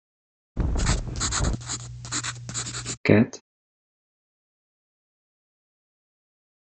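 At 0.56 seconds, wind can be heard. While that goes on, at 0.76 seconds, there is writing. After that, at 3.05 seconds, someone says "cat."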